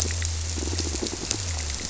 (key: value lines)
label: biophony, squirrelfish (Holocentrus)
recorder: SoundTrap 300

label: biophony
recorder: SoundTrap 300